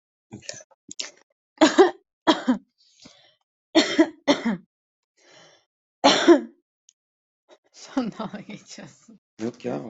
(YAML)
expert_labels:
- quality: good
  cough_type: dry
  dyspnea: false
  wheezing: false
  stridor: false
  choking: false
  congestion: false
  nothing: true
  diagnosis: healthy cough
  severity: pseudocough/healthy cough
age: 26
gender: female
respiratory_condition: false
fever_muscle_pain: false
status: healthy